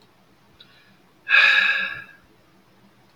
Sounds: Sigh